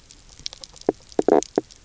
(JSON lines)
{"label": "biophony, knock croak", "recorder": "SoundTrap 300"}